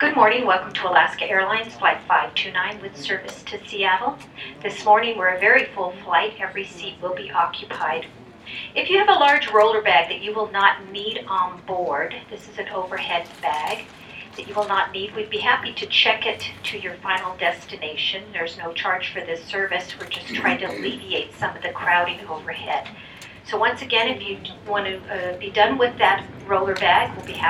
Is a woman speaking?
yes